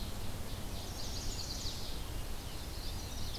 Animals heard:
Ovenbird (Seiurus aurocapilla), Chestnut-sided Warbler (Setophaga pensylvanica), Black-throated Blue Warbler (Setophaga caerulescens)

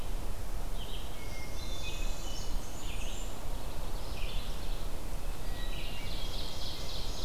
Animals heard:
Northern Parula (Setophaga americana), Ovenbird (Seiurus aurocapilla), Blackburnian Warbler (Setophaga fusca), Hermit Thrush (Catharus guttatus), Red-eyed Vireo (Vireo olivaceus)

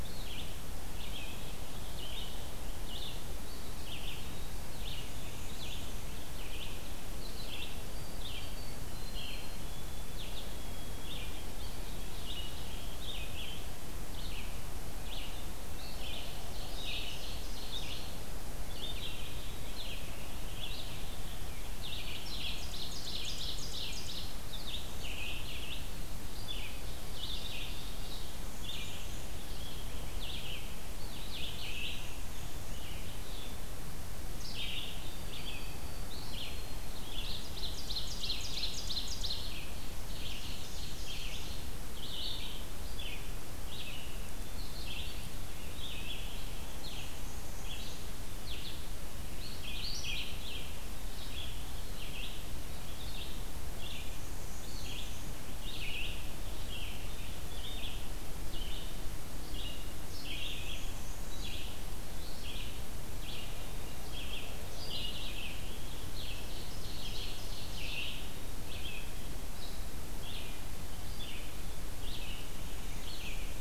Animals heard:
Black-capped Chickadee (Poecile atricapillus), Ovenbird (Seiurus aurocapilla), Eastern Wood-Pewee (Contopus virens), Black-and-white Warbler (Mniotilta varia), Red-eyed Vireo (Vireo olivaceus), White-throated Sparrow (Zonotrichia albicollis)

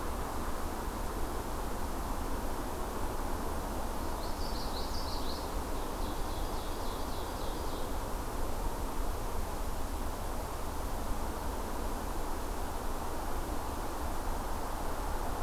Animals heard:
Ovenbird (Seiurus aurocapilla), Common Yellowthroat (Geothlypis trichas)

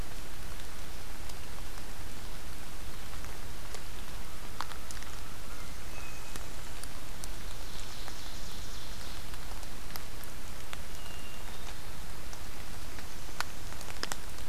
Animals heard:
Ovenbird (Seiurus aurocapilla), Hermit Thrush (Catharus guttatus), American Crow (Corvus brachyrhynchos)

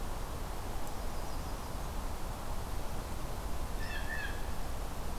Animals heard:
Blue Jay (Cyanocitta cristata), Yellow-rumped Warbler (Setophaga coronata)

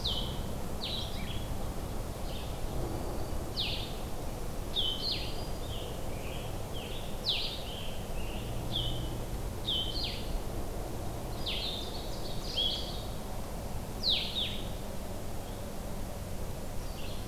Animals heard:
Black-throated Green Warbler (Setophaga virens), Red-eyed Vireo (Vireo olivaceus), Scarlet Tanager (Piranga olivacea), Blue-headed Vireo (Vireo solitarius), Ovenbird (Seiurus aurocapilla)

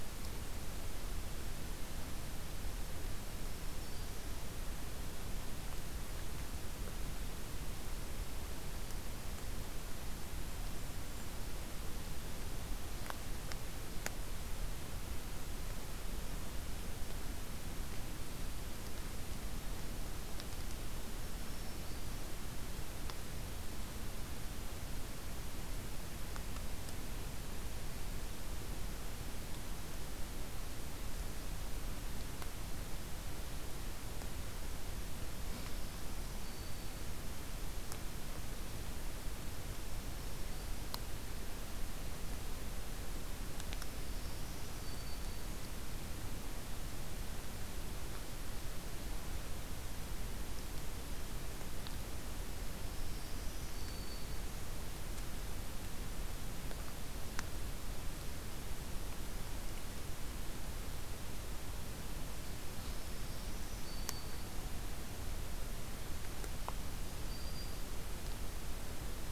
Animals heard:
Black-throated Green Warbler (Setophaga virens), Golden-crowned Kinglet (Regulus satrapa)

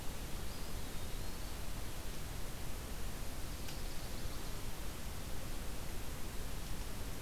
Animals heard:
Eastern Wood-Pewee (Contopus virens), Chestnut-sided Warbler (Setophaga pensylvanica)

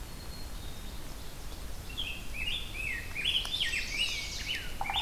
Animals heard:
Black-capped Chickadee (Poecile atricapillus), Ovenbird (Seiurus aurocapilla), Rose-breasted Grosbeak (Pheucticus ludovicianus), Chestnut-sided Warbler (Setophaga pensylvanica)

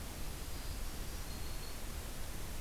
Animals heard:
Black-throated Green Warbler (Setophaga virens)

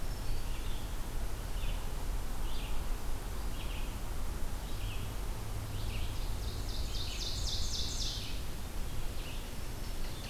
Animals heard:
Black-throated Green Warbler (Setophaga virens), Ovenbird (Seiurus aurocapilla), Red-eyed Vireo (Vireo olivaceus)

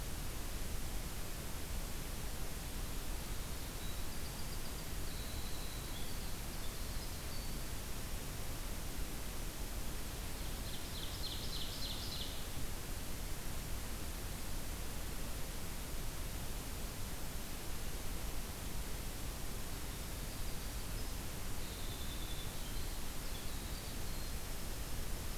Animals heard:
Ovenbird (Seiurus aurocapilla), Winter Wren (Troglodytes hiemalis)

